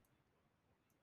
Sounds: Sniff